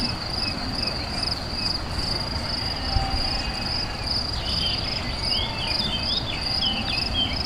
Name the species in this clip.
Gryllus campestris